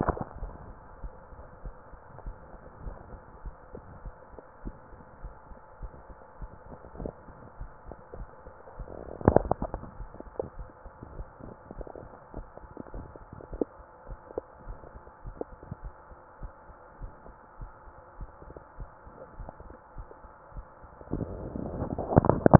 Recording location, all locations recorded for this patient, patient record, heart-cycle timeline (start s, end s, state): mitral valve (MV)
aortic valve (AV)+pulmonary valve (PV)+tricuspid valve (TV)+mitral valve (MV)
#Age: nan
#Sex: Female
#Height: nan
#Weight: nan
#Pregnancy status: True
#Murmur: Absent
#Murmur locations: nan
#Most audible location: nan
#Systolic murmur timing: nan
#Systolic murmur shape: nan
#Systolic murmur grading: nan
#Systolic murmur pitch: nan
#Systolic murmur quality: nan
#Diastolic murmur timing: nan
#Diastolic murmur shape: nan
#Diastolic murmur grading: nan
#Diastolic murmur pitch: nan
#Diastolic murmur quality: nan
#Outcome: Normal
#Campaign: 2015 screening campaign
0.00	2.22	unannotated
2.22	2.36	S1
2.36	2.50	systole
2.50	2.59	S2
2.59	2.82	diastole
2.82	2.96	S1
2.96	3.08	systole
3.08	3.18	S2
3.18	3.44	diastole
3.44	3.56	S1
3.56	3.73	systole
3.73	3.81	S2
3.81	4.02	diastole
4.02	4.12	S1
4.12	4.31	systole
4.31	4.42	S2
4.42	4.64	diastole
4.64	4.76	S1
4.76	4.89	systole
4.89	4.98	S2
4.98	5.24	diastole
5.24	5.34	S1
5.34	5.46	systole
5.46	5.56	S2
5.56	5.82	diastole
5.82	5.90	S1
5.90	6.07	systole
6.07	6.14	S2
6.14	6.38	diastole
6.38	6.48	S1
6.48	6.65	systole
6.65	6.76	S2
6.76	6.98	diastole
6.98	7.12	S1
7.12	7.24	systole
7.24	7.34	S2
7.34	7.60	diastole
7.60	7.70	S1
7.70	7.84	systole
7.84	7.93	S2
7.93	8.16	diastole
8.16	8.28	S1
8.28	8.43	systole
8.43	8.51	S2
8.51	8.76	diastole
8.76	8.86	S1
8.86	22.59	unannotated